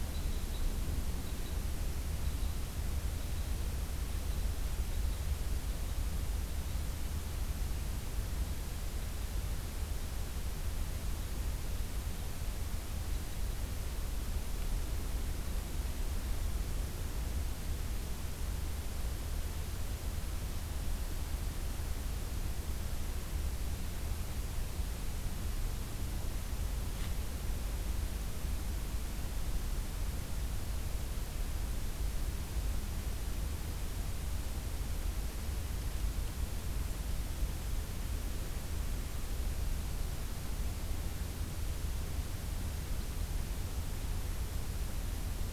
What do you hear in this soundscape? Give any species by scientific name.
Loxia curvirostra